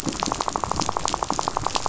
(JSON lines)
{"label": "biophony, rattle", "recorder": "SoundTrap 500"}